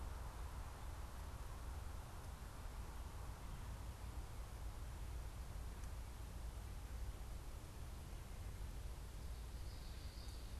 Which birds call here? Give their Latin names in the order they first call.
unidentified bird